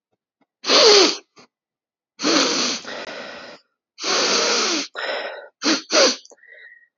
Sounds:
Sneeze